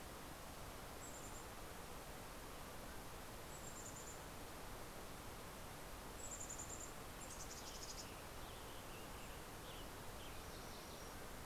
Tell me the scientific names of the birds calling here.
Poecile gambeli, Oreortyx pictus, Piranga ludoviciana